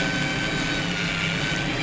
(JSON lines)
{"label": "anthrophony, boat engine", "recorder": "SoundTrap 500"}